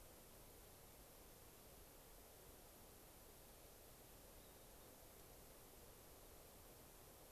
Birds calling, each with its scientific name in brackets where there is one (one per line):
Gray-crowned Rosy-Finch (Leucosticte tephrocotis)